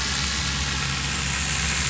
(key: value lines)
label: anthrophony, boat engine
recorder: SoundTrap 500